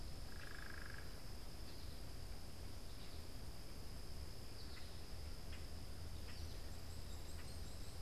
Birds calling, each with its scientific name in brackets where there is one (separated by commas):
unidentified bird, Common Grackle (Quiscalus quiscula), Hairy Woodpecker (Dryobates villosus), American Goldfinch (Spinus tristis)